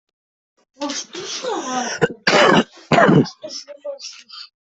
{"expert_labels": [{"quality": "good", "cough_type": "wet", "dyspnea": false, "wheezing": false, "stridor": false, "choking": false, "congestion": false, "nothing": true, "diagnosis": "healthy cough", "severity": "pseudocough/healthy cough"}], "age": 39, "gender": "other", "respiratory_condition": false, "fever_muscle_pain": false, "status": "COVID-19"}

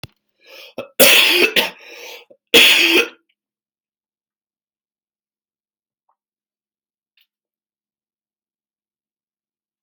{"expert_labels": [{"quality": "ok", "cough_type": "dry", "dyspnea": false, "wheezing": false, "stridor": false, "choking": false, "congestion": false, "nothing": true, "diagnosis": "lower respiratory tract infection", "severity": "mild"}], "age": 32, "gender": "female", "respiratory_condition": false, "fever_muscle_pain": false, "status": "symptomatic"}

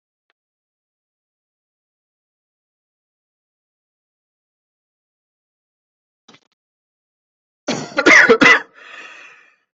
{"expert_labels": [{"quality": "ok", "cough_type": "dry", "dyspnea": false, "wheezing": false, "stridor": false, "choking": false, "congestion": false, "nothing": true, "diagnosis": "lower respiratory tract infection", "severity": "mild"}, {"quality": "good", "cough_type": "dry", "dyspnea": true, "wheezing": true, "stridor": false, "choking": false, "congestion": false, "nothing": false, "diagnosis": "obstructive lung disease", "severity": "mild"}, {"quality": "good", "cough_type": "wet", "dyspnea": false, "wheezing": false, "stridor": false, "choking": false, "congestion": false, "nothing": true, "diagnosis": "lower respiratory tract infection", "severity": "mild"}, {"quality": "good", "cough_type": "dry", "dyspnea": false, "wheezing": false, "stridor": false, "choking": false, "congestion": false, "nothing": true, "diagnosis": "upper respiratory tract infection", "severity": "mild"}]}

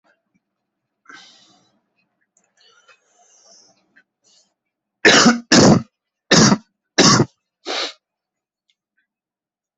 {"expert_labels": [{"quality": "good", "cough_type": "wet", "dyspnea": false, "wheezing": false, "stridor": false, "choking": false, "congestion": true, "nothing": false, "diagnosis": "lower respiratory tract infection", "severity": "mild"}], "age": 28, "gender": "male", "respiratory_condition": false, "fever_muscle_pain": false, "status": "COVID-19"}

